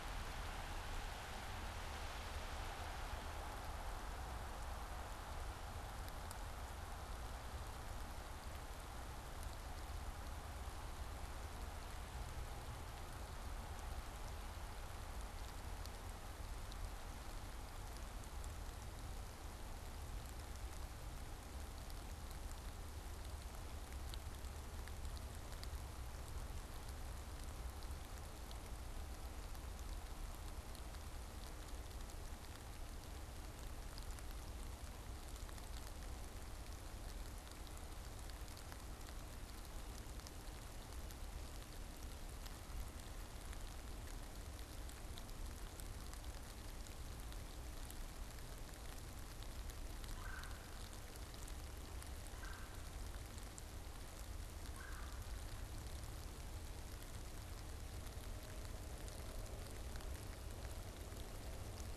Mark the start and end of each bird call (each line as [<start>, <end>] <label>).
[49.95, 55.35] Red-bellied Woodpecker (Melanerpes carolinus)